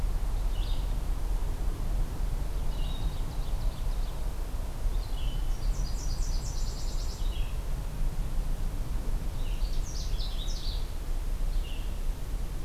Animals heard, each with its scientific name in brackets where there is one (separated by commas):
Canada Warbler (Cardellina canadensis), Nashville Warbler (Leiothlypis ruficapilla), Red-eyed Vireo (Vireo olivaceus), Ovenbird (Seiurus aurocapilla)